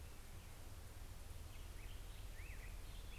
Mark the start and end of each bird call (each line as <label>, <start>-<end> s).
Black-headed Grosbeak (Pheucticus melanocephalus), 0.0-3.2 s